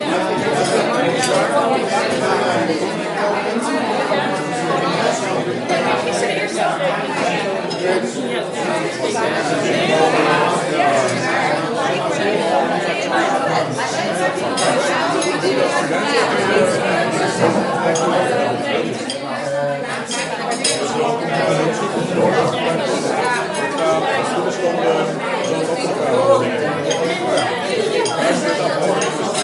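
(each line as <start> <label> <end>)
0.0 Many people are chattering. 29.4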